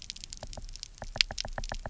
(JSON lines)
{"label": "biophony, knock", "recorder": "SoundTrap 300"}